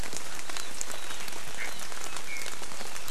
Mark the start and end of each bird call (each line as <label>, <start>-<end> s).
Iiwi (Drepanis coccinea), 2.3-2.6 s